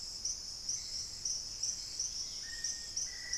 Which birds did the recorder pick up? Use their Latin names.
Turdus hauxwelli, Myrmotherula longipennis, Pachysylvia hypoxantha, Formicarius analis